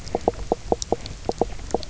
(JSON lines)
{"label": "biophony, knock croak", "recorder": "SoundTrap 300"}